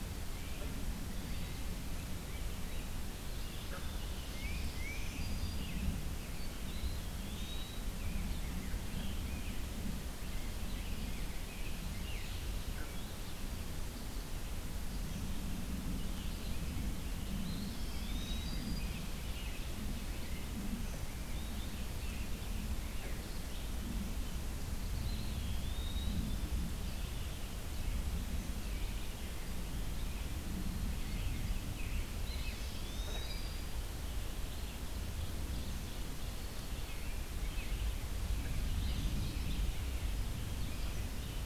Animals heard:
Tufted Titmouse (Baeolophus bicolor), Black-throated Green Warbler (Setophaga virens), Eastern Wood-Pewee (Contopus virens), American Robin (Turdus migratorius)

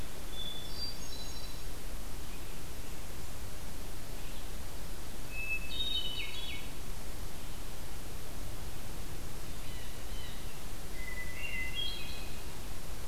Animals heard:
Hermit Thrush (Catharus guttatus), Blue Jay (Cyanocitta cristata)

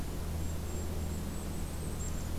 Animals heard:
Golden-crowned Kinglet (Regulus satrapa)

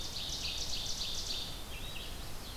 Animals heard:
Red-eyed Vireo (Vireo olivaceus), Ovenbird (Seiurus aurocapilla), Chestnut-sided Warbler (Setophaga pensylvanica)

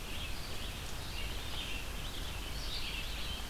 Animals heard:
Red-eyed Vireo (Vireo olivaceus)

